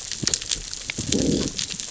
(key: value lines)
label: biophony, growl
recorder: SoundTrap 600 or HydroMoth